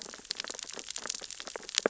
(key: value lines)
label: biophony, sea urchins (Echinidae)
recorder: SoundTrap 600 or HydroMoth